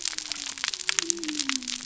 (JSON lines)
{"label": "biophony", "recorder": "SoundTrap 300"}